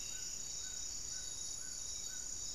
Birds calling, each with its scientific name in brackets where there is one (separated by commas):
Striped Woodcreeper (Xiphorhynchus obsoletus), Spot-winged Antshrike (Pygiptila stellaris), Amazonian Trogon (Trogon ramonianus)